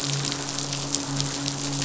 {"label": "biophony, midshipman", "recorder": "SoundTrap 500"}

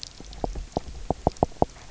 {"label": "biophony, knock", "recorder": "SoundTrap 300"}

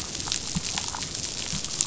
{"label": "biophony", "recorder": "SoundTrap 500"}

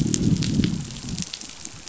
{"label": "biophony, growl", "recorder": "SoundTrap 500"}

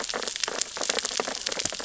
{"label": "biophony, sea urchins (Echinidae)", "recorder": "SoundTrap 600 or HydroMoth"}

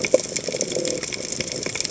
{"label": "biophony", "recorder": "HydroMoth"}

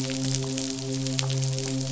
{"label": "biophony, midshipman", "recorder": "SoundTrap 500"}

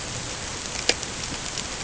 {"label": "ambient", "recorder": "HydroMoth"}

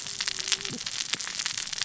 {"label": "biophony, cascading saw", "recorder": "SoundTrap 600 or HydroMoth"}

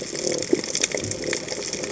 {"label": "biophony", "recorder": "HydroMoth"}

